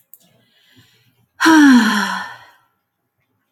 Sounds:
Sigh